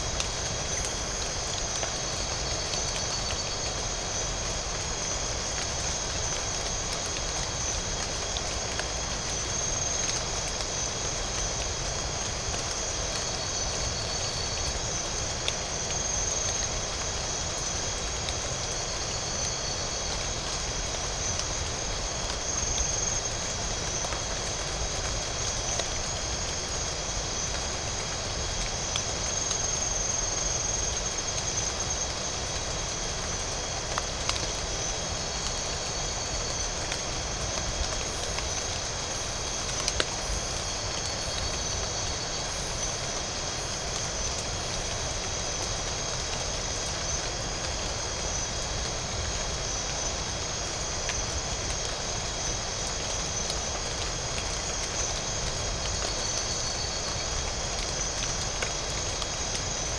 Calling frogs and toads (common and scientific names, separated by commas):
none